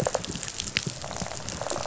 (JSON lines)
{"label": "biophony, rattle response", "recorder": "SoundTrap 500"}